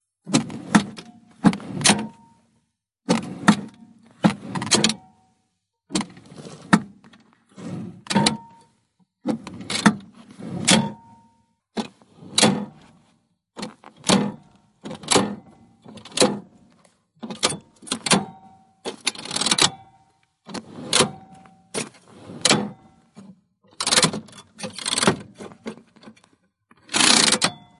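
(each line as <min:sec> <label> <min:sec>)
0:00.2 Someone is making rhythmic sounds of different kinds inside a car. 0:27.8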